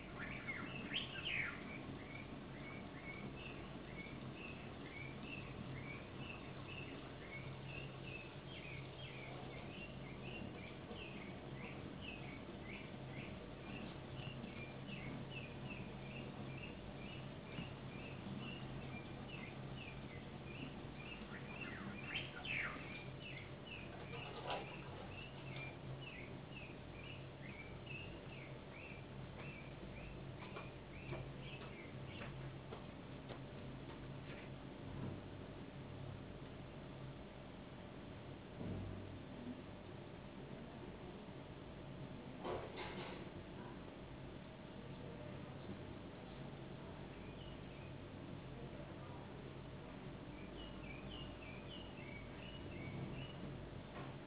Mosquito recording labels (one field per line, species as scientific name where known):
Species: no mosquito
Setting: insect culture